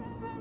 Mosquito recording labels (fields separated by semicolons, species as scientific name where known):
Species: Anopheles albimanus; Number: one; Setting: insect culture